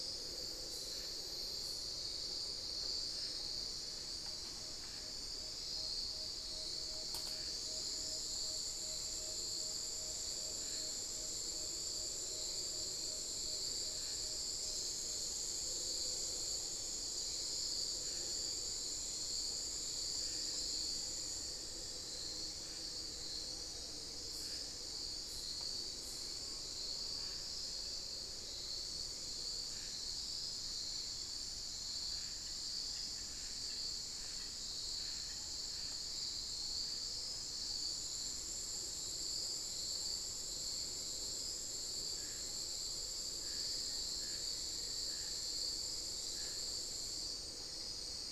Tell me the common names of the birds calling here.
Tawny-bellied Screech-Owl, Black-faced Antthrush, unidentified bird